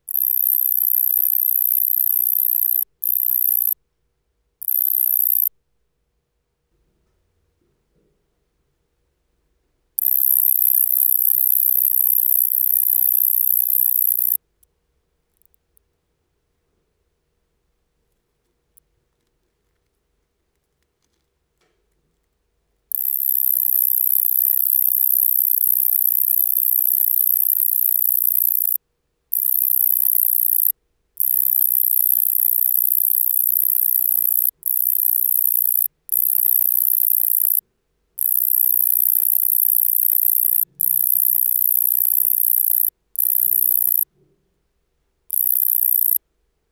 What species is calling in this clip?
Tettigonia longispina